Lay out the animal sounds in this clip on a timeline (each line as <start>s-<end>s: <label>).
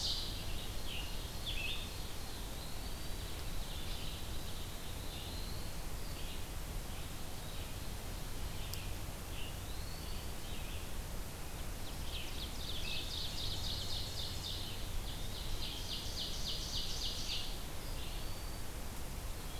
0.0s-2.4s: Ovenbird (Seiurus aurocapilla)
0.0s-18.4s: Red-eyed Vireo (Vireo olivaceus)
0.5s-1.8s: Scarlet Tanager (Piranga olivacea)
1.4s-3.5s: Eastern Wood-Pewee (Contopus virens)
2.8s-4.3s: Ovenbird (Seiurus aurocapilla)
4.1s-5.8s: Black-throated Blue Warbler (Setophaga caerulescens)
8.9s-10.4s: Eastern Wood-Pewee (Contopus virens)
11.5s-17.5s: Ovenbird (Seiurus aurocapilla)
17.7s-18.8s: Eastern Wood-Pewee (Contopus virens)